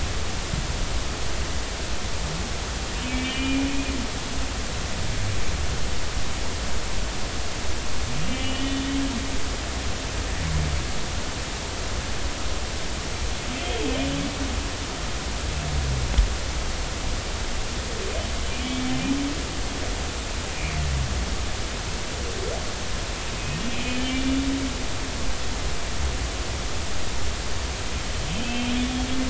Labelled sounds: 3.0	3.7	humpback whale, 2.2 to 3.0 kHz
8.2	9.7	humpback whale, 1.8 to 3.6 kHz
13.6	13.9	humpback whale, 3.0 to 3.3 kHz
23.7	24.1	humpback whale, 2.3 to 3.1 kHz
28.2	28.8	humpback whale, 2.6 to 3.4 kHz

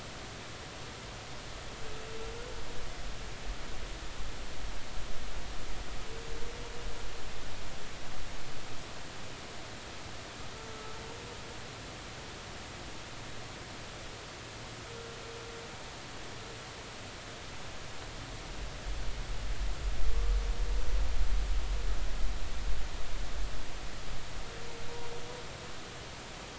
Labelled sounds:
10.7	11.0	humpback whale, 1.2 to 1.3 kHz

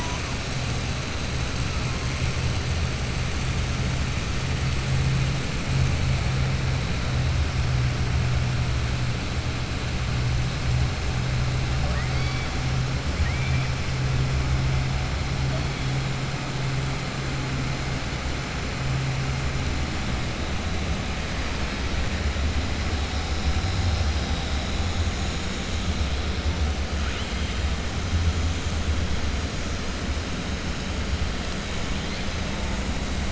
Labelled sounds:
13.1	13.7	killer whale, 1.8 to 3.0 kHz

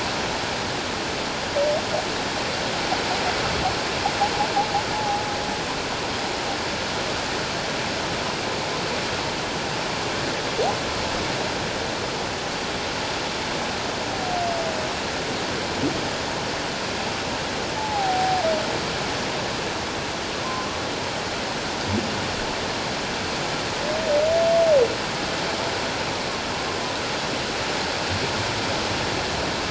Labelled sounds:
4.9	5.2	humpback whale, 0.78 to 0.91 kHz
17.8	18.4	humpback whale, 0.78 to 0.91 kHz

